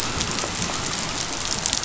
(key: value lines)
label: biophony
recorder: SoundTrap 500